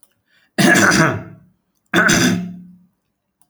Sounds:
Throat clearing